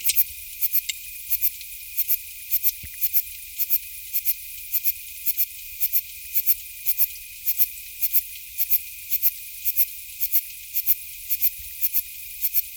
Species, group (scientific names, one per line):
Platycleis intermedia
Orthoptera